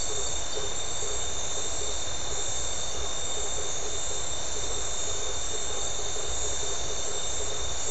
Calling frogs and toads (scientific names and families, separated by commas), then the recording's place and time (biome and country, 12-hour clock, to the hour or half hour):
Boana faber (Hylidae)
Atlantic Forest, Brazil, ~7pm